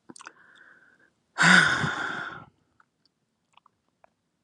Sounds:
Sigh